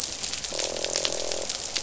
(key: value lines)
label: biophony, croak
recorder: SoundTrap 500